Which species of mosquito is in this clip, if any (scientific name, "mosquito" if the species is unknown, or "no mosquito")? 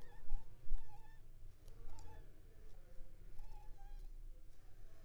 Culex pipiens complex